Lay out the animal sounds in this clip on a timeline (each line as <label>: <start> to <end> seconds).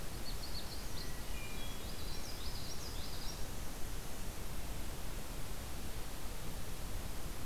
Magnolia Warbler (Setophaga magnolia): 0.0 to 1.3 seconds
Hermit Thrush (Catharus guttatus): 0.8 to 2.5 seconds
Common Yellowthroat (Geothlypis trichas): 1.7 to 3.8 seconds